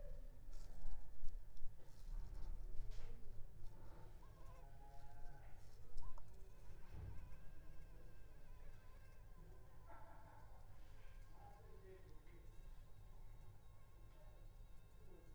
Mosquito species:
Culex pipiens complex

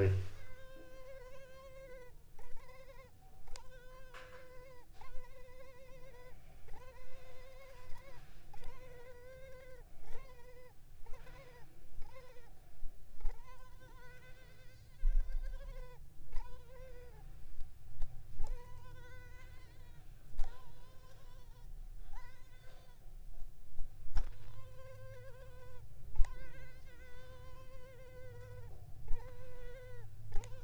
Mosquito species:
Culex pipiens complex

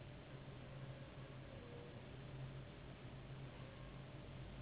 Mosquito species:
Anopheles gambiae s.s.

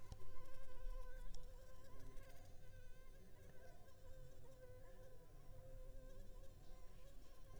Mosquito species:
Anopheles arabiensis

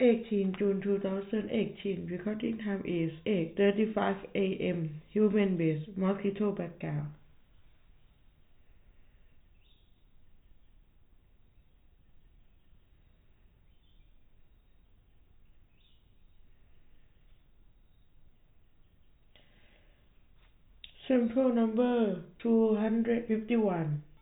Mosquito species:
no mosquito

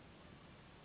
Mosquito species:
Anopheles gambiae s.s.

